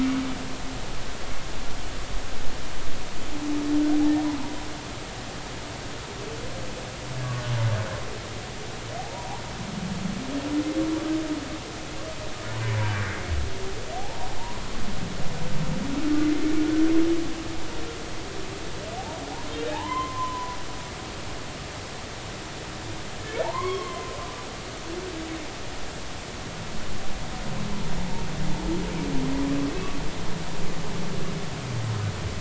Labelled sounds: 9.0	9.4	humpback whale, 0.80 to 1.0 kHz
12.8	13.1	humpback whale, 1.5 to 1.7 kHz
14.0	14.3	humpback whale, 0.80 to 0.99 kHz
19.7	20.6	humpback whale, 0.80 to 3.2 kHz
23.4	24.1	humpback whale, 0.80 to 3.4 kHz
28.0	28.2	humpback whale, 0.80 to 0.96 kHz

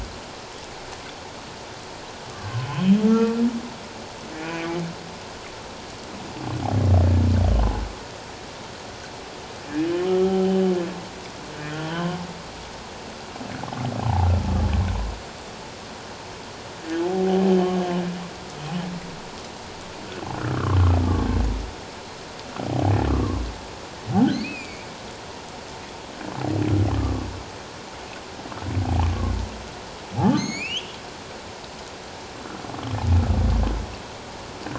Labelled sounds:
2.7	3.4	humpback whale, 1.1 to 3.4 kHz
4.3	4.7	humpback whale, 2.2 to 2.5 kHz
10.1	10.5	humpback whale, 0.78 to 1.4 kHz
11.9	12.2	humpback whale, 0.94 to 1.1 kHz
14.0	14.3	humpback whale, 0.78 to 1.0 kHz
17.1	17.5	humpback whale, 0.78 to 0.81 kHz
20.5	20.8	humpback whale, 1.0 to 1.6 kHz
23.1	24.9	humpback whale, 1.0 to 2.7 kHz
30.3	31.0	humpback whale, 2.0 to 7.3 kHz

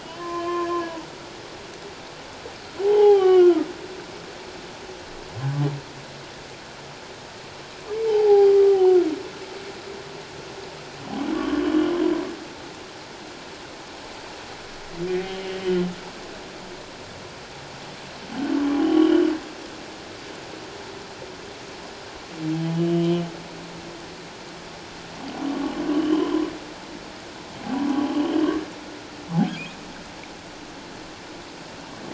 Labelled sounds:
0.0	0.6	humpback whale, 0.97 to 3.2 kHz
2.8	3.7	humpback whale, 0.78 to 3.3 kHz
8.1	8.5	humpback whale, 0.78 to 0.94 kHz
11.3	11.6	humpback whale, 1.0 to 1.2 kHz
15.1	15.7	humpback whale, 1.9 to 3.0 kHz
18.8	19.2	humpback whale, 2.8 to 3.3 kHz
22.8	23.2	humpback whale, 2.8 to 3.2 kHz
25.5	26.3	humpback whale, 1.1 to 3.3 kHz
28.1	28.5	humpback whale, 2.8 to 3.3 kHz

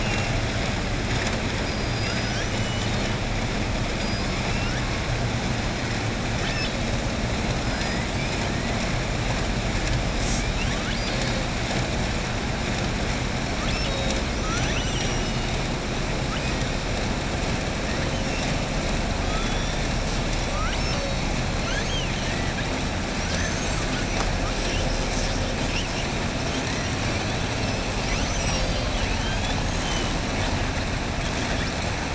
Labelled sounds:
2.5	3.1	killer whale, southern resident, 2.9 to 4.3 kHz
10.5	11.4	killer whale, southern resident, 1.2 to 5.1 kHz
20.5	21.2	killer whale, southern resident, 0.97 to 6.4 kHz
21.5	22.6	killer whale, southern resident, 1.4 to 6.5 kHz

